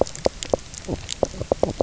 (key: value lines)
label: biophony, knock croak
recorder: SoundTrap 300